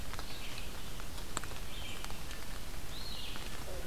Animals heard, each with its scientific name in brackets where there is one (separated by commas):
Red-eyed Vireo (Vireo olivaceus)